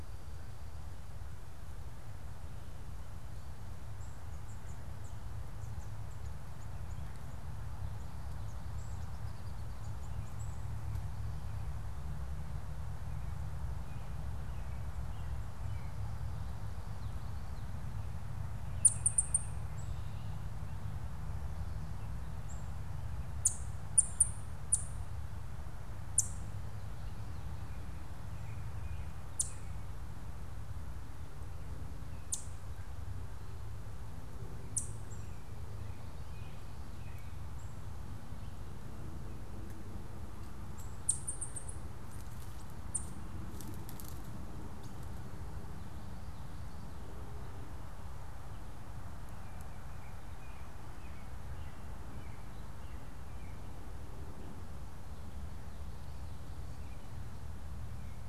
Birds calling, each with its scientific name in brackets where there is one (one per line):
American Robin (Turdus migratorius)
Ovenbird (Seiurus aurocapilla)
unidentified bird